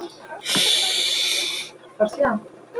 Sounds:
Sniff